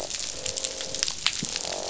{"label": "biophony, croak", "recorder": "SoundTrap 500"}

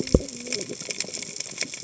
{"label": "biophony, cascading saw", "recorder": "HydroMoth"}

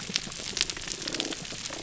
{"label": "biophony, damselfish", "recorder": "SoundTrap 300"}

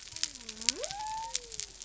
{"label": "biophony", "recorder": "SoundTrap 300"}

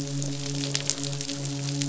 {"label": "biophony, midshipman", "recorder": "SoundTrap 500"}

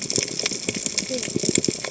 {"label": "biophony, cascading saw", "recorder": "HydroMoth"}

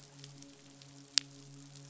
{"label": "biophony, midshipman", "recorder": "SoundTrap 500"}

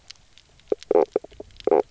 {"label": "biophony, knock croak", "recorder": "SoundTrap 300"}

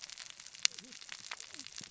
{"label": "biophony, cascading saw", "recorder": "SoundTrap 600 or HydroMoth"}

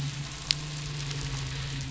{"label": "biophony, midshipman", "recorder": "SoundTrap 500"}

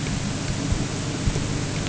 {"label": "anthrophony, boat engine", "recorder": "HydroMoth"}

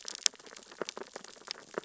{"label": "biophony, sea urchins (Echinidae)", "recorder": "SoundTrap 600 or HydroMoth"}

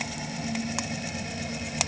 {"label": "anthrophony, boat engine", "recorder": "HydroMoth"}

